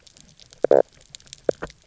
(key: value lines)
label: biophony, knock croak
recorder: SoundTrap 300